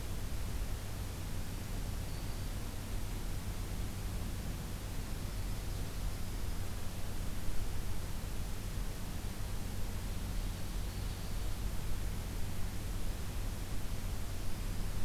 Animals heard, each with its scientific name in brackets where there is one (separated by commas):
Black-throated Green Warbler (Setophaga virens), Ovenbird (Seiurus aurocapilla), Yellow-rumped Warbler (Setophaga coronata)